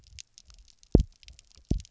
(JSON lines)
{"label": "biophony, double pulse", "recorder": "SoundTrap 300"}